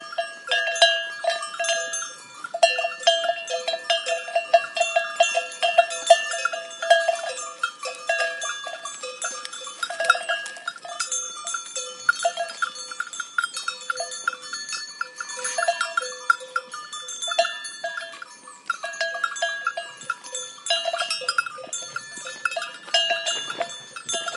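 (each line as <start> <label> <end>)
0.0 Monotonous ringing of bells. 24.4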